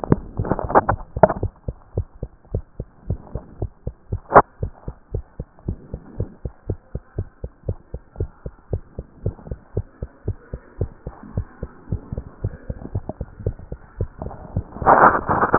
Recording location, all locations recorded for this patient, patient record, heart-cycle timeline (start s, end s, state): mitral valve (MV)
aortic valve (AV)+pulmonary valve (PV)+tricuspid valve (TV)+mitral valve (MV)
#Age: Child
#Sex: Female
#Height: 121.0 cm
#Weight: 19.3 kg
#Pregnancy status: False
#Murmur: Absent
#Murmur locations: nan
#Most audible location: nan
#Systolic murmur timing: nan
#Systolic murmur shape: nan
#Systolic murmur grading: nan
#Systolic murmur pitch: nan
#Systolic murmur quality: nan
#Diastolic murmur timing: nan
#Diastolic murmur shape: nan
#Diastolic murmur grading: nan
#Diastolic murmur pitch: nan
#Diastolic murmur quality: nan
#Outcome: Abnormal
#Campaign: 2014 screening campaign
0.00	1.84	unannotated
1.84	1.96	diastole
1.96	2.06	S1
2.06	2.20	systole
2.20	2.30	S2
2.30	2.52	diastole
2.52	2.64	S1
2.64	2.78	systole
2.78	2.86	S2
2.86	3.08	diastole
3.08	3.20	S1
3.20	3.34	systole
3.34	3.42	S2
3.42	3.60	diastole
3.60	3.70	S1
3.70	3.86	systole
3.86	3.94	S2
3.94	4.10	diastole
4.10	4.22	S1
4.22	4.34	systole
4.34	4.44	S2
4.44	4.62	diastole
4.62	4.72	S1
4.72	4.86	systole
4.86	4.94	S2
4.94	5.12	diastole
5.12	5.24	S1
5.24	5.38	systole
5.38	5.46	S2
5.46	5.66	diastole
5.66	5.78	S1
5.78	5.92	systole
5.92	6.00	S2
6.00	6.18	diastole
6.18	6.30	S1
6.30	6.44	systole
6.44	6.52	S2
6.52	6.68	diastole
6.68	6.78	S1
6.78	6.94	systole
6.94	7.02	S2
7.02	7.16	diastole
7.16	7.28	S1
7.28	7.42	systole
7.42	7.50	S2
7.50	7.66	diastole
7.66	7.78	S1
7.78	7.92	systole
7.92	8.00	S2
8.00	8.18	diastole
8.18	8.30	S1
8.30	8.44	systole
8.44	8.52	S2
8.52	8.72	diastole
8.72	8.82	S1
8.82	8.96	systole
8.96	9.06	S2
9.06	9.24	diastole
9.24	9.36	S1
9.36	9.48	systole
9.48	9.58	S2
9.58	9.76	diastole
9.76	9.86	S1
9.86	10.00	systole
10.00	10.10	S2
10.10	10.26	diastole
10.26	10.38	S1
10.38	10.52	systole
10.52	10.60	S2
10.60	10.80	diastole
10.80	10.90	S1
10.90	11.06	systole
11.06	11.14	S2
11.14	11.34	diastole
11.34	11.46	S1
11.46	11.62	systole
11.62	11.70	S2
11.70	11.90	diastole
11.90	12.02	S1
12.02	12.14	systole
12.14	12.24	S2
12.24	12.42	diastole
12.42	12.54	S1
12.54	12.68	systole
12.68	12.78	S2
12.78	12.94	diastole
12.94	13.04	S1
13.04	13.18	systole
13.18	13.28	S2
13.28	13.44	diastole
13.44	13.56	S1
13.56	13.70	systole
13.70	13.78	S2
13.78	13.98	diastole
13.98	14.10	S1
14.10	14.22	systole
14.22	14.34	S2
14.34	14.54	diastole
14.54	15.58	unannotated